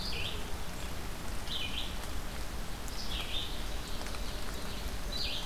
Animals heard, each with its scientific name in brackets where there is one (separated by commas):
Ovenbird (Seiurus aurocapilla), Red-eyed Vireo (Vireo olivaceus)